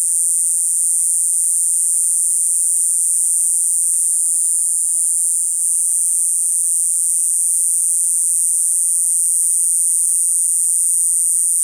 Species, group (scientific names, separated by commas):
Diceroprocta eugraphica, Cicadidae